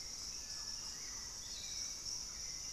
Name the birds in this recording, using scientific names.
Turdus hauxwelli, Legatus leucophaius, Campylorhynchus turdinus